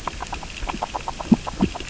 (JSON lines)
{"label": "biophony, grazing", "recorder": "SoundTrap 600 or HydroMoth"}